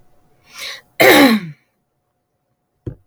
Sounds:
Throat clearing